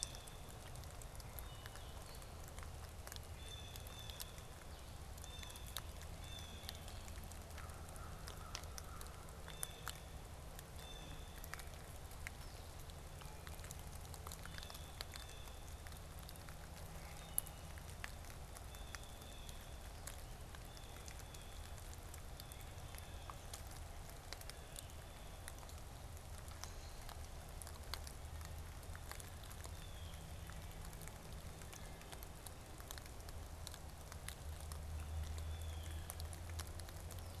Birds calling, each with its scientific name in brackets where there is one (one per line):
American Robin (Turdus migratorius)
Wood Thrush (Hylocichla mustelina)
Blue Jay (Cyanocitta cristata)
Blue-headed Vireo (Vireo solitarius)